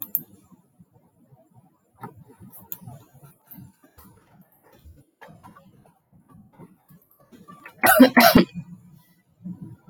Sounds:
Cough